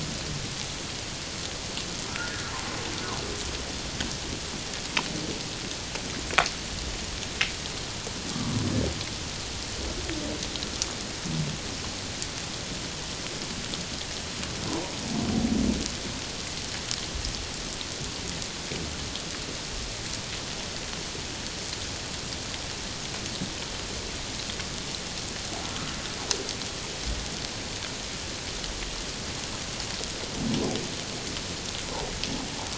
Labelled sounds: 2.1	2.5	humpback whale, 1.3 to 1.5 kHz
8.3	8.6	humpback whale, 0.94 to 1.2 kHz

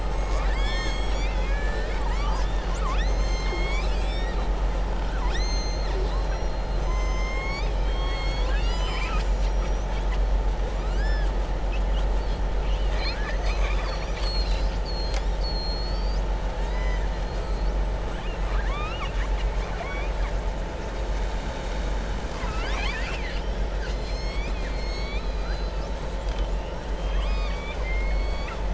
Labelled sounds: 16.6	17.0	killer whale, southern resident, 0.98 to 6.0 kHz
18.1	19.5	killer whale, southern resident, 1.1 to 5.2 kHz
22.1	23.6	killer whale, southern resident, 0.99 to 7.8 kHz
26.9	28.6	killer whale, southern resident, 1.1 to 5.0 kHz

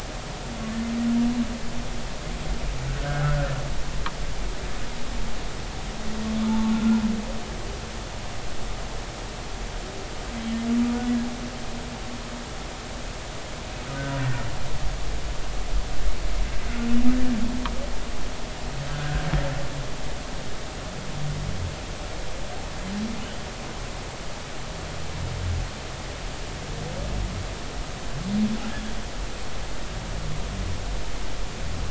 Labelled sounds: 3.0	3.5	humpback whale, 1.3 to 1.7 kHz
6.5	7.0	humpback whale, 0.83 to 1.5 kHz
14.1	14.4	humpback whale, 1.8 to 1.9 kHz
20.0	20.2	humpback whale, 1.4 to 1.7 kHz

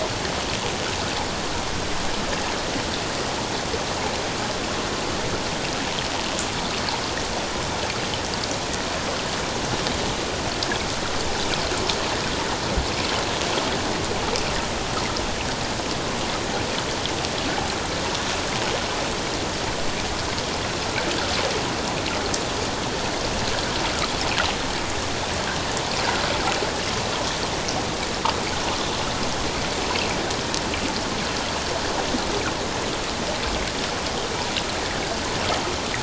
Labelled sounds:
29.8	30.1	water noise, 2.5 to 2.8 kHz

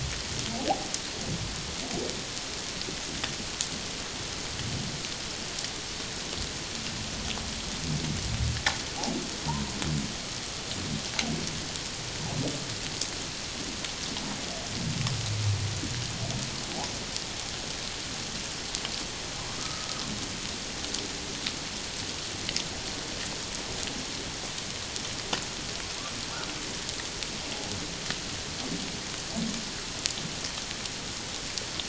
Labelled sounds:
19.6	19.9	humpback whale, 1.2 to 1.3 kHz

